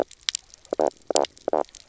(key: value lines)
label: biophony, knock croak
recorder: SoundTrap 300